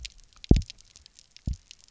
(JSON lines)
{"label": "biophony, double pulse", "recorder": "SoundTrap 300"}